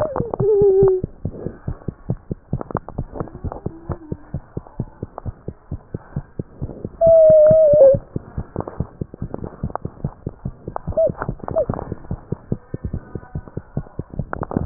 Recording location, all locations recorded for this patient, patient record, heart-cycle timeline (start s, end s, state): tricuspid valve (TV)
aortic valve (AV)+pulmonary valve (PV)+tricuspid valve (TV)
#Age: Child
#Sex: Female
#Height: 85.0 cm
#Weight: 11.9 kg
#Pregnancy status: False
#Murmur: Absent
#Murmur locations: nan
#Most audible location: nan
#Systolic murmur timing: nan
#Systolic murmur shape: nan
#Systolic murmur grading: nan
#Systolic murmur pitch: nan
#Systolic murmur quality: nan
#Diastolic murmur timing: nan
#Diastolic murmur shape: nan
#Diastolic murmur grading: nan
#Diastolic murmur pitch: nan
#Diastolic murmur quality: nan
#Outcome: Normal
#Campaign: 2015 screening campaign
0.00	1.05	unannotated
1.05	1.23	diastole
1.23	1.32	S1
1.32	1.42	systole
1.42	1.53	S2
1.53	1.64	diastole
1.64	1.75	S1
1.75	1.86	systole
1.86	1.92	S2
1.92	2.07	diastole
2.07	2.17	S1
2.17	2.27	systole
2.27	2.36	S2
2.36	2.50	diastole
2.50	2.60	S1
2.60	2.70	systole
2.70	2.82	S2
2.82	2.95	diastole
2.95	3.08	S1
3.08	3.18	systole
3.18	3.26	S2
3.26	3.42	diastole
3.42	3.52	S1
3.52	3.62	systole
3.62	3.72	S2
3.72	3.85	diastole
3.85	3.98	S1
3.98	4.08	systole
4.08	4.18	S2
4.18	4.31	diastole
4.31	4.44	S1
4.44	4.54	systole
4.54	4.62	S2
4.62	4.77	diastole
4.77	4.90	S1
4.90	5.00	systole
5.00	5.10	S2
5.10	5.23	diastole
5.23	5.36	S1
5.36	5.45	systole
5.45	5.54	S2
5.54	5.69	diastole
5.69	5.82	S1
5.82	5.92	systole
5.92	6.02	S2
6.02	6.15	diastole
6.15	6.23	S1
6.23	6.36	systole
6.36	6.44	S2
6.44	6.59	diastole
6.59	6.71	S1
6.71	6.82	systole
6.82	6.92	S2
6.92	6.99	diastole
6.99	14.66	unannotated